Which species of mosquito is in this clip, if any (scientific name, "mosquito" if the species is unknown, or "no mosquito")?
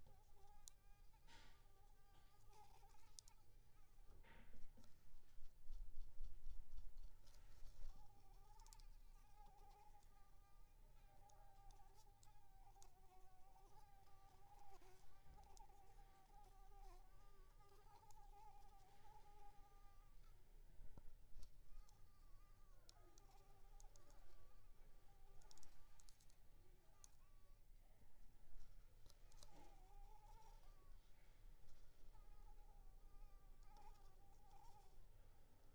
Anopheles squamosus